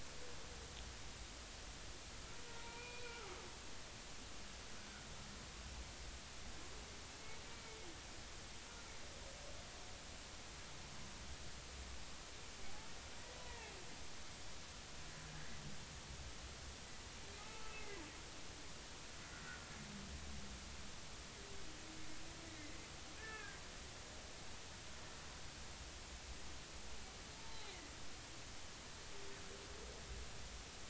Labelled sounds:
2.5	3.3	humpback whale, 0.90 to 2.5 kHz
13.4	13.8	humpback whale, 0.80 to 2.0 kHz
17.4	18.0	humpback whale, 0.80 to 2.2 kHz
19.3	19.7	humpback whale, 1.3 to 1.6 kHz
22.6	23.6	humpback whale, 1.2 to 2.2 kHz
27.4	27.7	humpback whale, 0.80 to 0.93 kHz

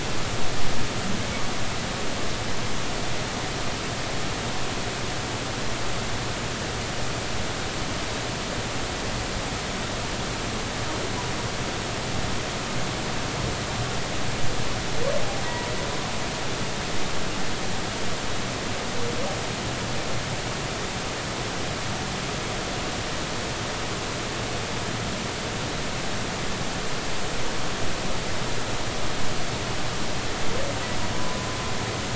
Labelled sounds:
15.4	15.7	humpback whale, 0.90 to 1.0 kHz
31.1	31.4	humpback whale, 0.96 to 1.1 kHz

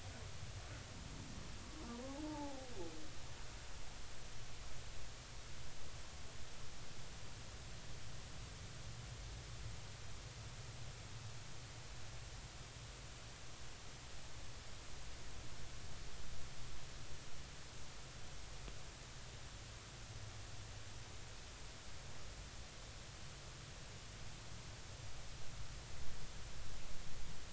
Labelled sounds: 2.0	2.7	humpback whale, 0.80 to 0.99 kHz

